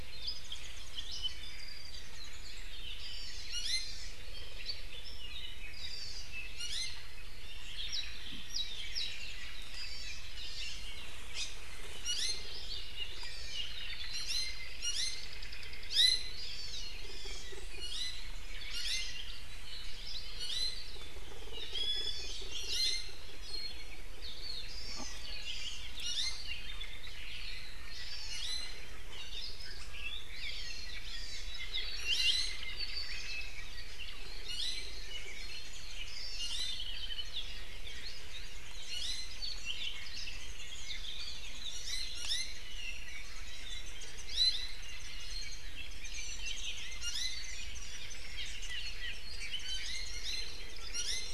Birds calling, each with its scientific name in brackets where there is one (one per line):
Omao (Myadestes obscurus)
Hawaii Amakihi (Chlorodrepanis virens)
Warbling White-eye (Zosterops japonicus)
Iiwi (Drepanis coccinea)
Apapane (Himatione sanguinea)